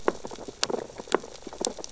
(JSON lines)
{"label": "biophony, sea urchins (Echinidae)", "recorder": "SoundTrap 600 or HydroMoth"}